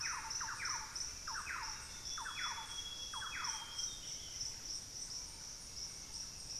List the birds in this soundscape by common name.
unidentified bird, Thrush-like Wren, Buff-breasted Wren, Hauxwell's Thrush, Amazonian Grosbeak